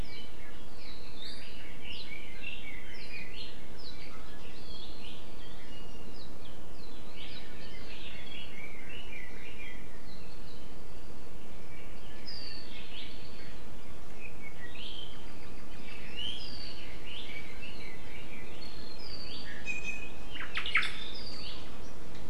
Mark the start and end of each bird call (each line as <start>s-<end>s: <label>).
0.0s-3.4s: Red-billed Leiothrix (Leiothrix lutea)
5.6s-6.2s: Iiwi (Drepanis coccinea)
7.1s-9.9s: Red-billed Leiothrix (Leiothrix lutea)
12.3s-13.6s: Iiwi (Drepanis coccinea)
14.2s-16.5s: Apapane (Himatione sanguinea)
16.4s-16.8s: Iiwi (Drepanis coccinea)
17.0s-18.6s: Red-billed Leiothrix (Leiothrix lutea)
18.6s-20.3s: Iiwi (Drepanis coccinea)
20.3s-21.2s: Omao (Myadestes obscurus)
21.1s-21.7s: Iiwi (Drepanis coccinea)